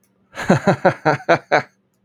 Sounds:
Laughter